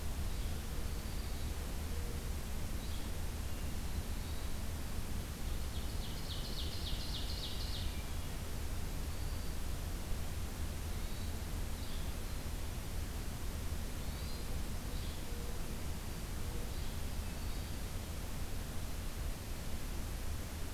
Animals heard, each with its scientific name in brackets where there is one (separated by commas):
Black-throated Green Warbler (Setophaga virens), Hermit Thrush (Catharus guttatus), Ovenbird (Seiurus aurocapilla), Yellow-bellied Flycatcher (Empidonax flaviventris)